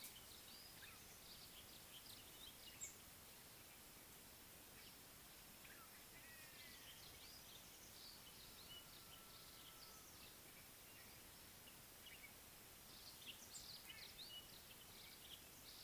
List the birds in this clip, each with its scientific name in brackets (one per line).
White-bellied Go-away-bird (Corythaixoides leucogaster)